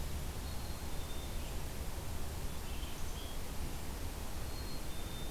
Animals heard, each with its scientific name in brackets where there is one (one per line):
Black-capped Chickadee (Poecile atricapillus)